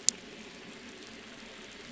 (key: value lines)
label: anthrophony, boat engine
recorder: SoundTrap 500